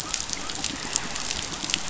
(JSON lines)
{"label": "biophony", "recorder": "SoundTrap 500"}